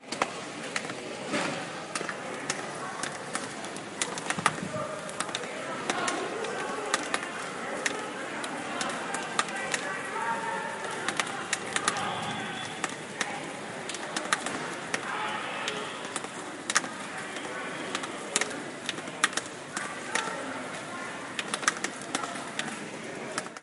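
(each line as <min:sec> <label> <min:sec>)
0:00.0 Gentle rain falls consistently over a quiet urban area at night, creating a calm background with occasional muffled voices of people talking in the distance. 0:23.6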